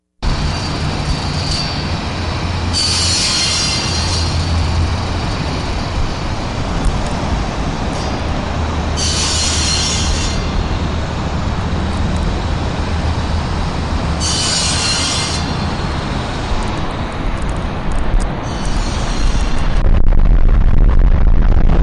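Power tools hum quietly in a steady pattern. 0.2 - 18.4
A saw runs loudly with a fading pattern. 2.7 - 4.7
A saw runs loudly with a fading pattern. 8.9 - 10.7
A saw runs loudly with a fading pattern. 14.1 - 15.4
A microphone clicks quietly in a repeating pattern. 17.0 - 18.3
A saw runs muffled in a fading pattern outside. 18.3 - 19.9
A microphone hums in a muffled, repeating pattern. 20.0 - 21.8

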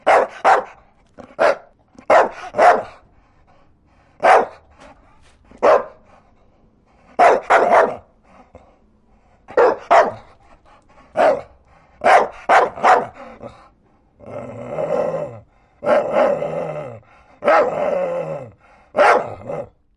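A dog barks loudly with occasional pauses. 0.0 - 14.3
A dog growls with pauses in between. 14.3 - 20.0

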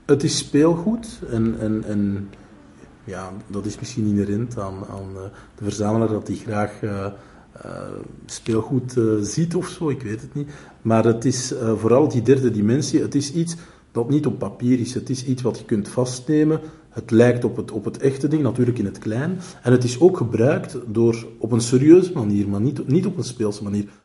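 A man is giving a speech to an audience. 0.1 - 23.9

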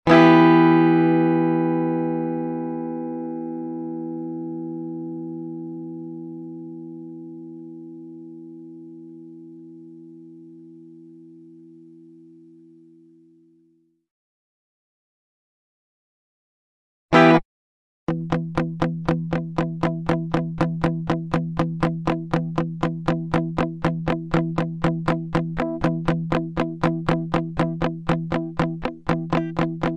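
A single open guitar strum with a very long reverb. 0.0 - 14.0
A single short, muted guitar strum. 17.0 - 17.6
Repetitive and rhythmic plucking of muted, soft guitar strings. 18.0 - 29.9

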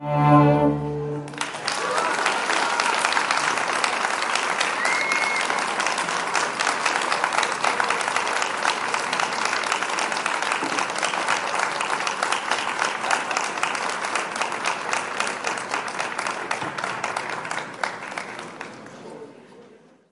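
The final notes of an instrument's melody gracefully fade into silence. 0.0 - 1.1
An enthusiastic audience applauds repeatedly with rhythmic hand-clapping. 1.3 - 20.1

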